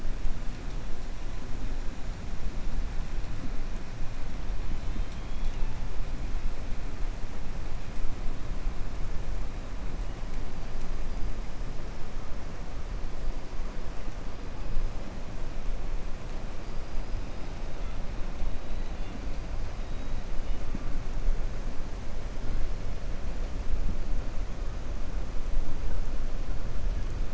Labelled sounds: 4.7	5.7	killer whale, 1.8 to 4.4 kHz
18.6	19.2	killer whale, 2.1 to 4.6 kHz

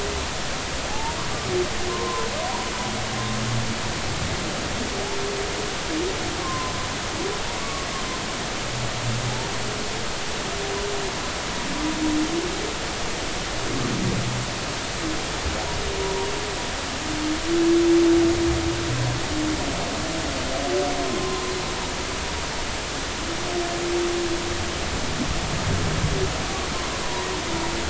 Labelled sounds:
0.9	1.2	humpback whale, 0.80 to 0.99 kHz
1.9	2.3	humpback whale, 0.90 to 1.1 kHz
6.4	6.7	humpback whale, 0.93 to 1.2 kHz
7.6	7.9	humpback whale, 1.1 to 1.2 kHz
27.0	27.3	humpback whale, 0.90 to 1.1 kHz

